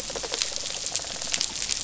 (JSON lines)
{"label": "biophony, rattle response", "recorder": "SoundTrap 500"}